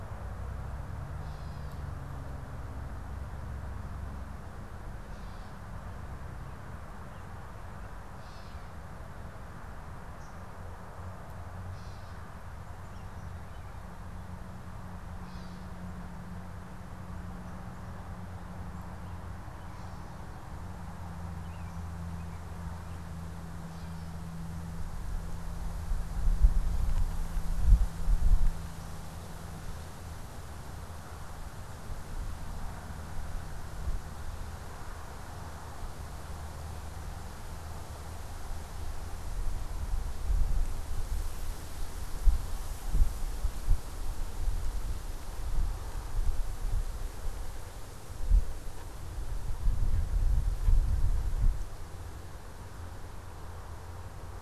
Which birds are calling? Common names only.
Gray Catbird, American Robin